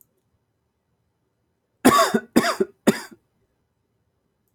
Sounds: Cough